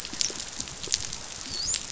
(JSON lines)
{"label": "biophony, dolphin", "recorder": "SoundTrap 500"}